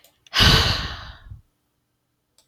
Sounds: Sigh